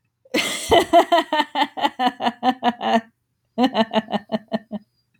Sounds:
Laughter